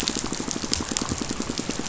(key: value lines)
label: biophony, pulse
recorder: SoundTrap 500